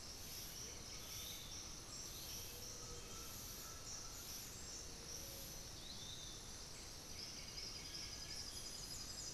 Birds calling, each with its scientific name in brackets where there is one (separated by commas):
Piratic Flycatcher (Legatus leucophaius), Little Tinamou (Crypturellus soui), Undulated Tinamou (Crypturellus undulatus), White-winged Becard (Pachyramphus polychopterus)